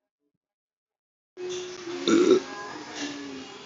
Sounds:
Sniff